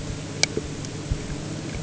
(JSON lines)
{"label": "anthrophony, boat engine", "recorder": "HydroMoth"}